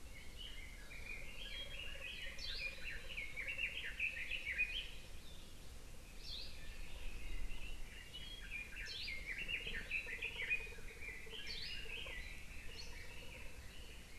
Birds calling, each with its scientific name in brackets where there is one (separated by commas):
Hawaii Amakihi (Chlorodrepanis virens), Red-billed Leiothrix (Leiothrix lutea)